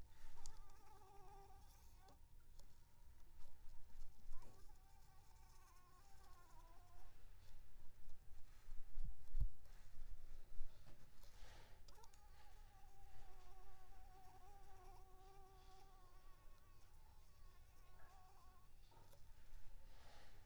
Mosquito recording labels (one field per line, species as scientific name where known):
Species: Anopheles arabiensis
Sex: female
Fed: unfed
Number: one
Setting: cup